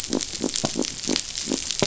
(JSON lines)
{"label": "biophony", "recorder": "SoundTrap 500"}